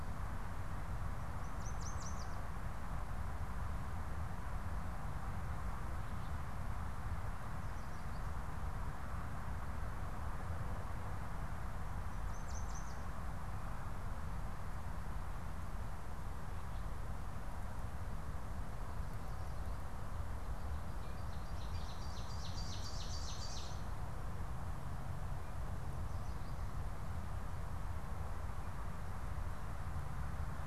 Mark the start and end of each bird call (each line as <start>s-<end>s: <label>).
1.4s-3.0s: Yellow Warbler (Setophaga petechia)
12.2s-13.5s: Yellow Warbler (Setophaga petechia)
20.8s-24.5s: Ovenbird (Seiurus aurocapilla)